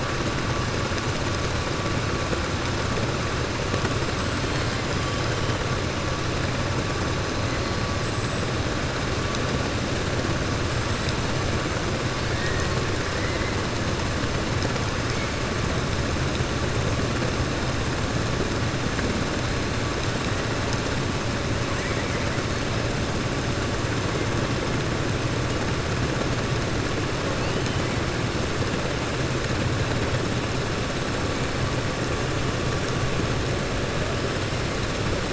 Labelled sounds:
13.1	13.5	killer whale, 1.8 to 3.0 kHz

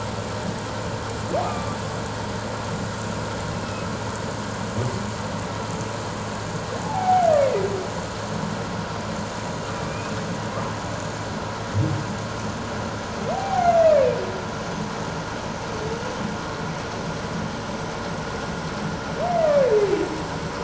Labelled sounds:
1.4	1.8	humpback whale, 1.1 to 1.3 kHz
6.8	7.7	humpback whale, 0.78 to 2.3 kHz
9.8	10.1	humpback whale, 2.3 to 2.6 kHz
13.3	13.7	humpback whale, 0.78 to 0.84 kHz
19.3	19.6	humpback whale, 1.7 to 2.2 kHz

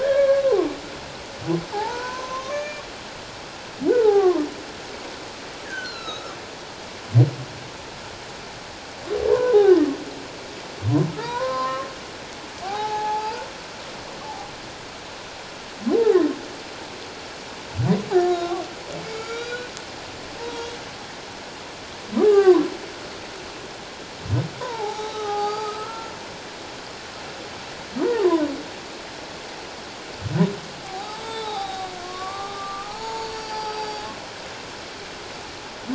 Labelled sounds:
0.0	0.4	humpback whale, 1.0 to 2.3 kHz
1.7	2.8	humpback whale, 0.78 to 6.6 kHz
3.9	4.4	humpback whale, 0.78 to 1.6 kHz
5.6	6.4	humpback whale, 1.1 to 6.9 kHz
9.3	9.6	humpback whale, 0.91 to 1.1 kHz
11.1	11.9	humpback whale, 0.84 to 4.2 kHz
12.6	13.4	humpback whale, 0.78 to 4.9 kHz
14.2	14.5	humpback whale, 0.78 to 0.94 kHz
15.9	16.2	humpback whale, 0.78 to 0.97 kHz
18.1	19.7	humpback whale, 1.0 to 6.9 kHz
20.4	20.8	humpback whale, 0.88 to 3.4 kHz
22.2	22.6	humpback whale, 0.78 to 1.8 kHz
24.5	26.1	humpback whale, 0.78 to 4.8 kHz
28.0	28.3	humpback whale, 0.81 to 1.1 kHz
30.8	34.0	humpback whale, 0.78 to 7.7 kHz

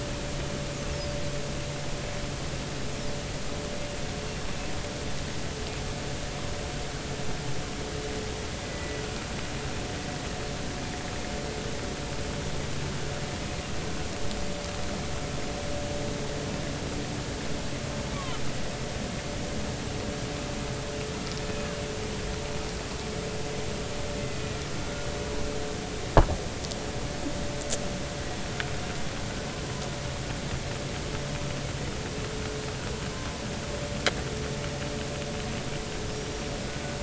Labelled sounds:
8.7	9.0	Risso's dolphin, 1.9 to 2.0 kHz
18.1	18.4	Risso's dolphin, 0.93 to 3.4 kHz
24.8	25.1	Risso's dolphin, 1.4 to 1.5 kHz
36.1	36.6	small unidentified odontocete, 5.5 to 5.7 kHz

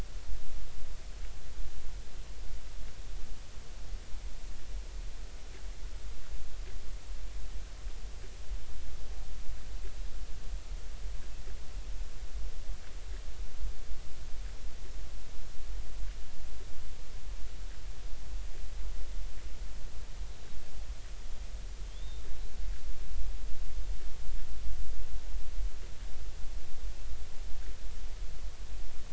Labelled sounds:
21.9	22.5	killer whale, Bigg's (transient), 3.1 to 4.1 kHz

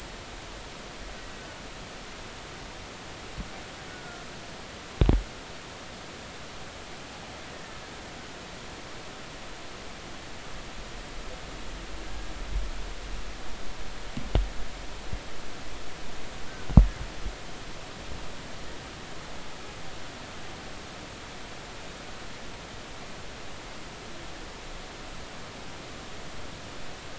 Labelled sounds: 3.9	4.2	killer whale, Bigg's (transient), 1.3 to 1.5 kHz
7.5	7.8	killer whale, Bigg's (transient), 1.7 to 1.9 kHz
12.0	12.3	killer whale, Bigg's (transient), 1.6 to 1.7 kHz

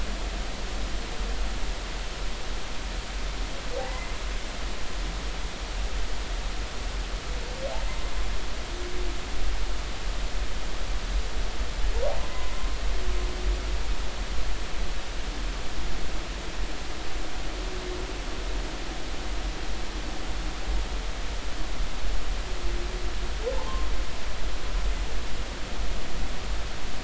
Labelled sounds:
3.8	4.2	humpback whale, 0.80 to 2.1 kHz
12.3	12.7	humpback whale, 0.93 to 1.1 kHz

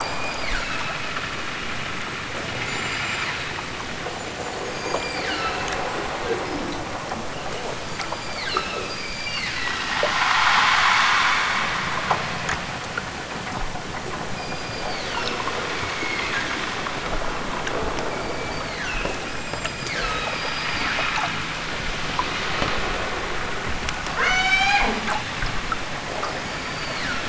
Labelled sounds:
0.1	0.8	killer whale, southern Alaska resident, 1.0 to 8.0 kHz
2.5	3.5	killer whale, southern Alaska resident, 3.2 to 8.0 kHz
4.7	5.8	killer whale, southern Alaska resident, 0.87 to 8.0 kHz
7.8	9.9	killer whale, southern Alaska resident, 0.83 to 8.0 kHz
14.3	16.5	killer whale, southern Alaska resident, 0.69 to 7.0 kHz
18.1	21.3	killer whale, southern Alaska resident, 0.78 to 8.0 kHz
24.1	24.9	killer whale, southern Alaska resident, 0.46 to 8.0 kHz
26.3	27.2	killer whale, southern Alaska resident, 1.0 to 8.0 kHz

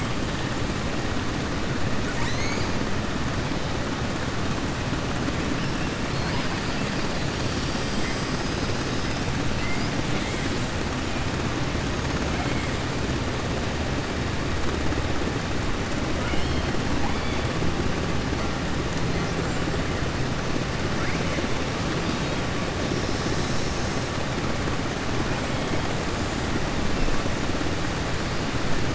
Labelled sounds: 16.1	16.7	killer whale, southern resident, 0.94 to 4.2 kHz

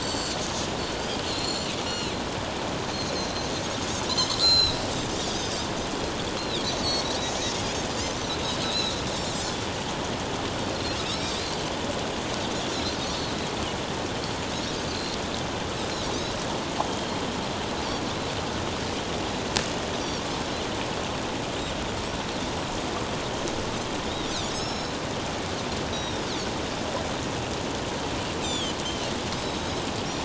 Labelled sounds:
0.0	0.4	Pacific white-sided dolphin, 4.2 to 7.6 kHz
1.2	2.1	Pacific white-sided dolphin, 2.5 to 7.3 kHz
4.4	5.7	Pacific white-sided dolphin, 2.7 to 7.9 kHz
6.4	7.0	Pacific white-sided dolphin, 3.2 to 4.4 kHz
8.6	8.9	Pacific white-sided dolphin, 3.7 to 4.3 kHz
10.7	11.3	Pacific white-sided dolphin, 4.1 to 5.8 kHz
13.0	13.3	Pacific white-sided dolphin, 4.2 to 4.5 kHz
14.9	15.2	Pacific white-sided dolphin, 4.0 to 4.3 kHz
16.9	17.1	Pacific white-sided dolphin, 3.0 to 3.3 kHz
20.0	20.3	Pacific white-sided dolphin, 5.4 to 5.9 kHz
24.3	24.9	Pacific white-sided dolphin, 3.4 to 8.0 kHz
25.9	26.3	Pacific white-sided dolphin, 3.5 to 5.8 kHz
28.4	29.9	Pacific white-sided dolphin, 2.7 to 7.5 kHz

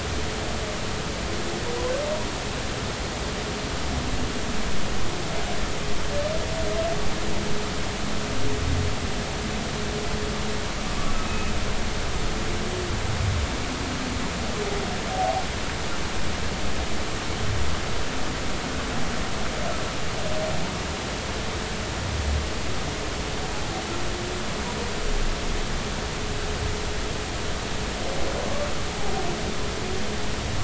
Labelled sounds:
11.3	11.5	humpback whale, 2.5 to 2.6 kHz

